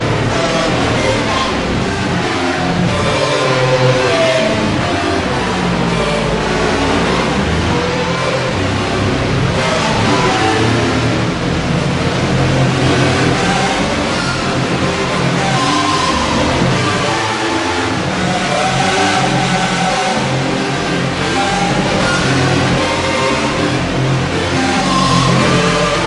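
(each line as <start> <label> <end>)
0.0 Pigs squealing and grunting loudly and very close by. 26.1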